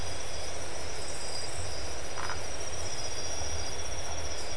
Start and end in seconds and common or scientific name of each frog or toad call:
2.1	2.5	Phyllomedusa distincta